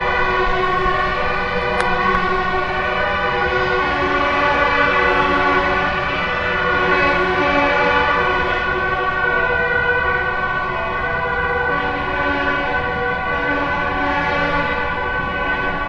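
0.0s A police siren sounds continuously. 4.0s
6.9s A horn sounds combined with police sirens in the background. 8.9s

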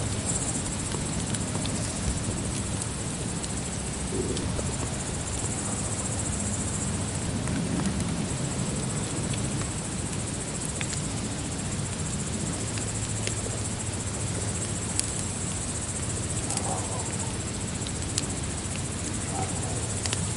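0.0s Wood burning in a natural outdoor setting, likely a campfire. 20.3s
0.0s Crickets are chirping, indicating nighttime. 20.4s
0.0s Rain is falling. 20.4s
16.6s Dogs are barking in the distance. 20.4s

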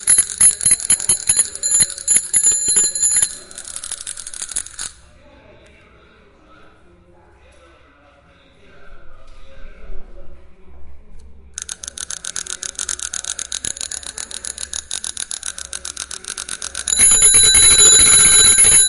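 0.0s A bell is ringing. 3.5s
0.0s People are talking in the background. 16.8s
3.5s Clicking sounds and objects rubbing against each other. 5.0s
11.5s Clicking sounds and objects rubbing against each other. 16.8s
16.9s A bell rings loudly and aggressively. 18.9s

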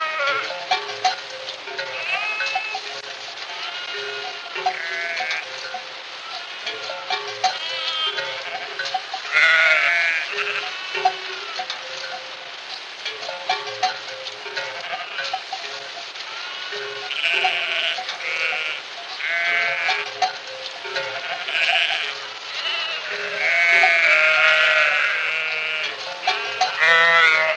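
0.0s A flock of sheep is baaing muffled outdoors. 9.3s
0.4s A cowbell rings repeatedly in a muffled way outdoors. 27.6s
9.3s A flock of sheep is baaing. 11.2s
11.2s A sheep is baaing muffled outdoors. 11.9s
14.8s A flock of sheep is baaing muffled outdoors. 17.2s
17.2s A flock of sheep is baaing. 27.6s

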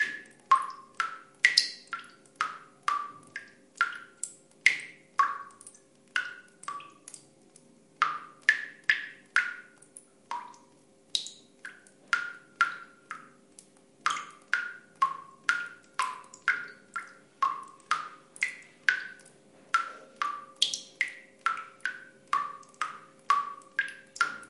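0.0s Water droplets fall from a faucet into water with an echo. 24.5s

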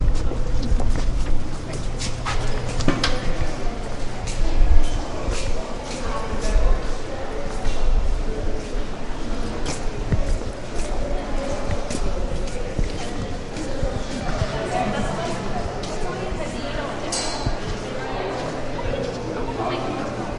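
0.0s Footsteps are clearly audible. 9.1s
1.5s A person is speaking. 2.2s
2.9s Metallic clanking sound, likely from someone stepping on a metal surface. 3.2s
2.9s People murmuring in the background. 20.4s
9.7s Footsteps are clearly audible. 16.5s
14.7s Women are speaking. 20.4s

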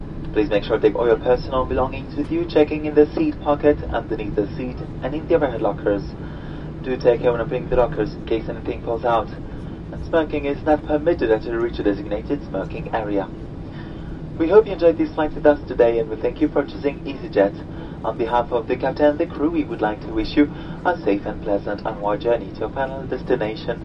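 0.0s A plane engine continuously hums quietly in the background. 23.8s
0.3s A male flight attendant makes an announcement in English over a microphone. 23.8s

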